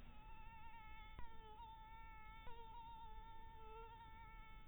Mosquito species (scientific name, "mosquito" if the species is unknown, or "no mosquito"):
mosquito